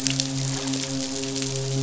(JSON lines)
{"label": "biophony, midshipman", "recorder": "SoundTrap 500"}